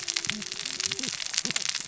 {"label": "biophony, cascading saw", "recorder": "SoundTrap 600 or HydroMoth"}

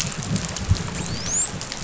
{"label": "biophony, dolphin", "recorder": "SoundTrap 500"}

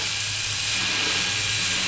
{"label": "anthrophony, boat engine", "recorder": "SoundTrap 500"}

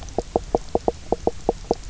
{"label": "biophony, knock croak", "recorder": "SoundTrap 300"}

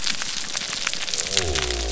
{"label": "biophony", "recorder": "SoundTrap 300"}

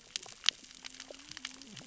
{"label": "biophony, cascading saw", "recorder": "SoundTrap 600 or HydroMoth"}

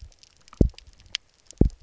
{"label": "biophony, double pulse", "recorder": "SoundTrap 300"}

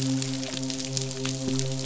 {"label": "biophony, midshipman", "recorder": "SoundTrap 500"}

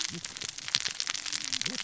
{"label": "biophony, cascading saw", "recorder": "SoundTrap 600 or HydroMoth"}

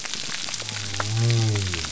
{"label": "biophony", "recorder": "SoundTrap 300"}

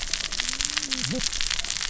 {"label": "biophony, cascading saw", "recorder": "SoundTrap 600 or HydroMoth"}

